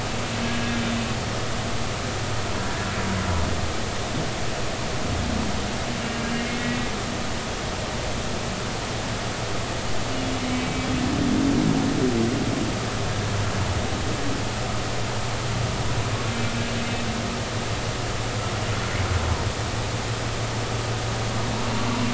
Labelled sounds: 6.4	6.6	humpback whale, 2.1 to 2.2 kHz
10.5	10.9	humpback whale, 2.2 to 2.3 kHz

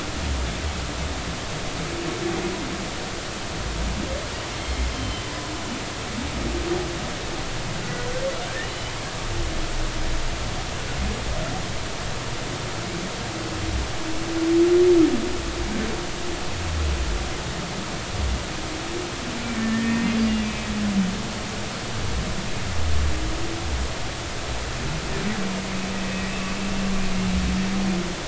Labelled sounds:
4.6	5.3	humpback whale, 3.0 to 3.2 kHz
19.5	20.7	humpback whale, 1.7 to 2.6 kHz
26.0	26.3	humpback whale, 1.9 to 2.0 kHz

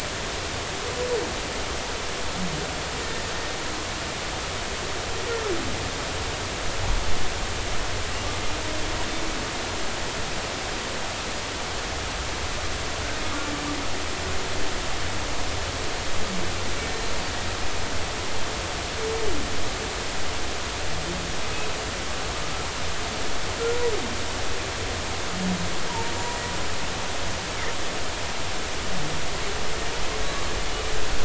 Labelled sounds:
25.9	26.1	humpback whale, 0.86 to 1.1 kHz

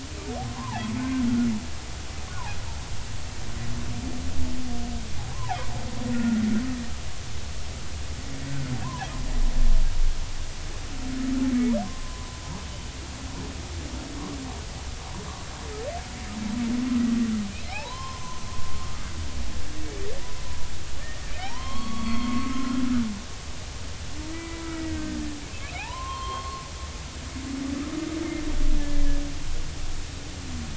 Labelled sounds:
0.4	0.8	humpback whale, 0.80 to 1.2 kHz
6.2	6.6	humpback whale, 0.80 to 1.5 kHz
8.8	9.1	humpback whale, 0.80 to 1.1 kHz
11.8	12.4	humpback whale, 0.93 to 1.1 kHz
17.6	18.4	humpback whale, 0.80 to 6.2 kHz
21.3	22.8	humpback whale, 0.80 to 4.5 kHz
24.3	25.2	humpback whale, 0.96 to 2.0 kHz
25.8	26.6	humpback whale, 0.80 to 4.3 kHz

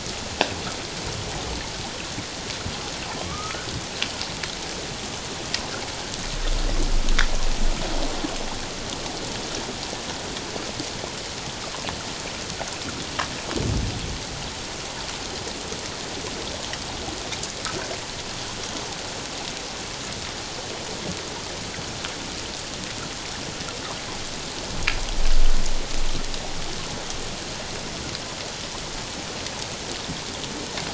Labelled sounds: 3.3	3.7	humpback whale, 1.1 to 1.5 kHz

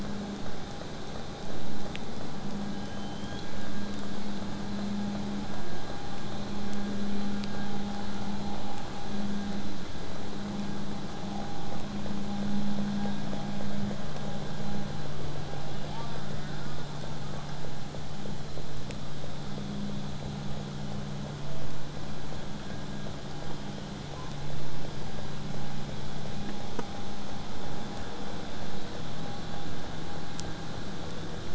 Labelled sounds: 2.6	4.0	killer whale, southern resident, whistle, 1.4 to 4.2 kHz
15.8	17.6	killer whale, southern resident, 0.49 to 2.6 kHz

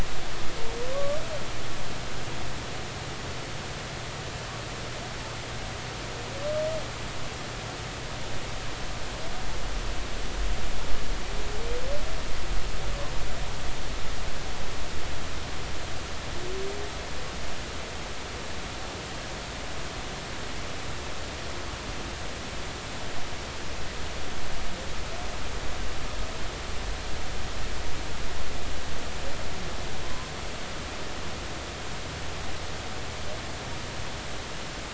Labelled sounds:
0.9	1.2	humpback whale, 1.0 to 1.2 kHz
30.0	30.3	humpback whale, 0.96 to 1.1 kHz

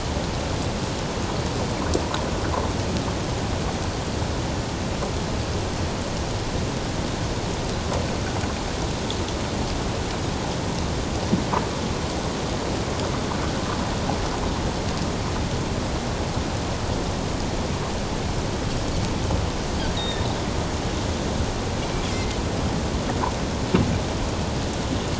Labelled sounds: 20.0	20.3	Pacific white-sided dolphin, 1.7 to 3.9 kHz
22.1	22.4	Pacific white-sided dolphin, 2.0 to 2.2 kHz

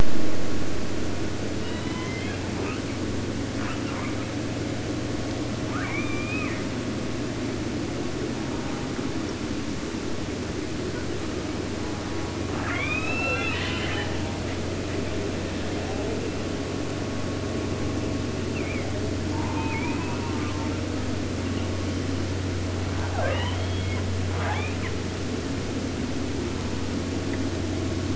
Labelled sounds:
1.5	3.0	killer whale, southern resident, J pod, call S01, 0.52 to 6.8 kHz
3.5	4.3	killer whale, 0.65 to 3.6 kHz
5.6	6.7	killer whale, southern resident, 0.50 to 6.3 kHz
8.3	9.3	killer whale, southern resident, J pod, call S04, 0.56 to 1.7 kHz
11.3	14.4	killer whale, southern resident, 0.50 to 8.0 kHz
18.5	18.9	killer whale, 1.5 to 3.2 kHz
19.3	20.8	killer whale, 0.50 to 3.0 kHz
22.9	24.1	killer whale, southern resident, J pod, call S44, 0.34 to 5.4 kHz
24.3	25.0	killer whale, 0.50 to 3.8 kHz
26.4	27.1	killer whale, southern resident, J pod, call S04, 0.57 to 1.8 kHz

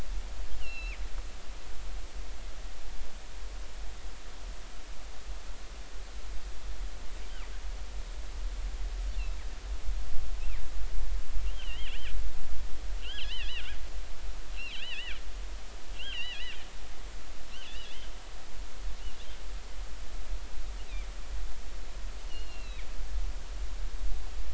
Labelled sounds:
0.6	1.0	killer whale, northern resident, G clan, 2.1 to 4.1 kHz
11.5	12.1	killer whale, northern resident, G clan, 2.6 to 3.5 kHz
13.0	13.7	killer whale, northern resident, G clan, 1.6 to 3.4 kHz
14.6	15.2	killer whale, northern resident, G clan, 1.3 to 4.3 kHz
16.0	16.6	killer whale, northern resident, G clan, 1.6 to 3.4 kHz
17.5	18.1	killer whale, northern resident, G clan, 2.5 to 3.4 kHz
22.2	22.9	killer whale, northern resident, G clan, 2.0 to 4.4 kHz

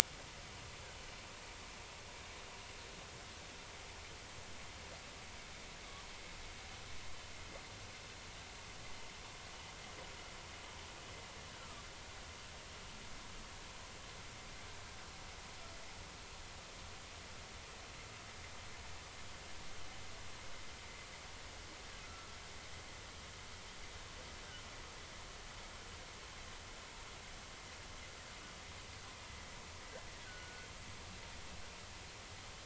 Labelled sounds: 11.6	11.8	humpback whale, 1.1 to 1.4 kHz
22.0	22.3	humpback whale, 1.3 to 1.5 kHz
30.2	30.7	humpback whale, 1.4 to 1.7 kHz

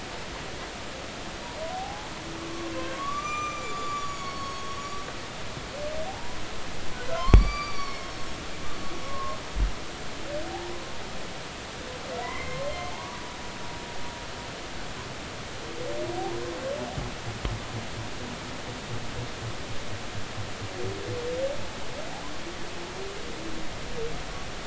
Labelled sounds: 1.7	4.7	humpback whale, 0.80 to 7.3 kHz
6.1	6.4	humpback whale, 0.80 to 1.1 kHz
7.2	8.2	humpback whale, 0.99 to 6.0 kHz
9.0	9.4	humpback whale, 1.0 to 1.1 kHz
10.5	10.8	humpback whale, 0.80 to 1.1 kHz
12.2	13.2	humpback whale, 0.83 to 2.2 kHz

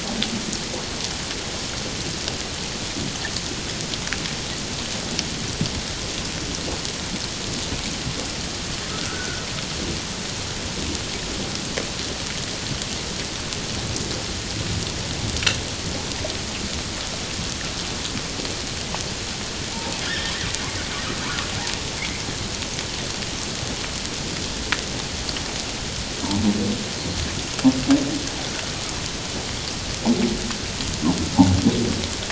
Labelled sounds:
8.9	9.4	humpback whale, 1.2 to 1.6 kHz
20.0	20.3	humpback whale, 1.5 to 1.9 kHz

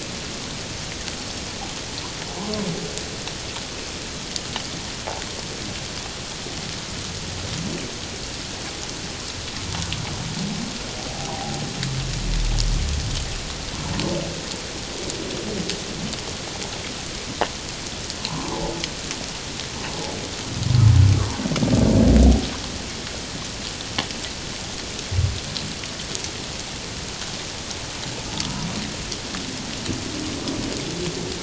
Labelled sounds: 11.1	11.6	humpback whale, 0.78 to 1.0 kHz
18.2	18.5	humpback whale, 0.81 to 1.1 kHz

